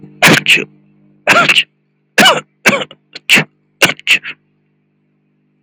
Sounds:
Sneeze